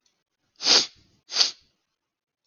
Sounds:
Sniff